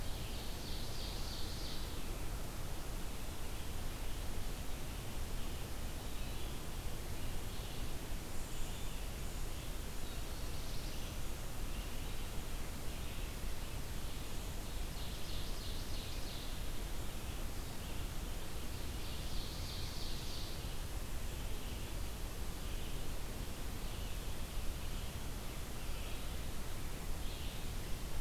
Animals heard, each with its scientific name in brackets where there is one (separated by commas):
Red-eyed Vireo (Vireo olivaceus), Ovenbird (Seiurus aurocapilla), Black-throated Blue Warbler (Setophaga caerulescens)